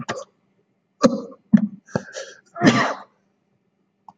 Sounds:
Cough